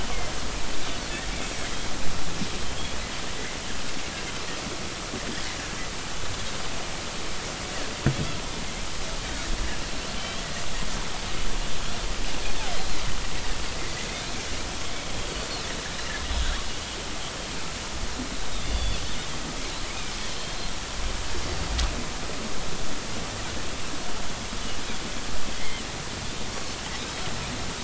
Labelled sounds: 10.2	10.4	Pacific white-sided dolphin, 3.0 to 3.4 kHz
18.5	19.0	Pacific white-sided dolphin, 3.4 to 4.8 kHz
25.5	25.8	Pacific white-sided dolphin, 1.9 to 2.3 kHz
27.0	27.2	Pacific white-sided dolphin, 5.1 to 5.3 kHz

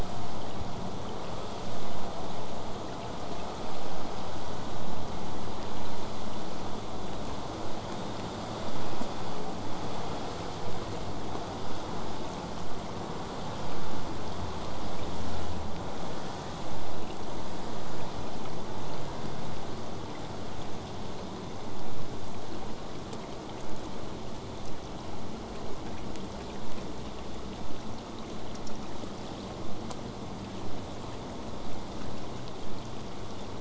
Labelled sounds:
28.6	33.5	vessel noise, 0 to 8.0 kHz

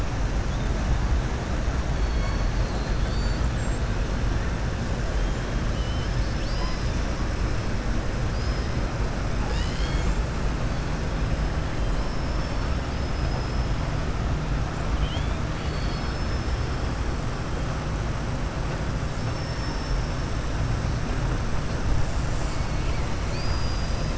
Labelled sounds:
1.9	3.5	killer whale, southern resident, 2.2 to 4.9 kHz
12.9	13.6	killer whale, southern resident, 4.9 to 5.5 kHz
15.5	16.7	killer whale, southern resident, 2.9 to 5.3 kHz
23.2	24.1	killer whale, southern resident, 2.5 to 5.3 kHz

